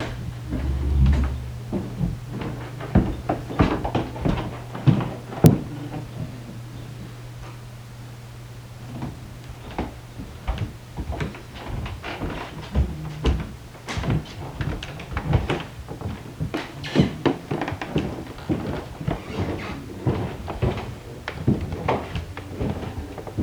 Did a dog bark?
no